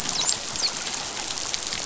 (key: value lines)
label: biophony, dolphin
recorder: SoundTrap 500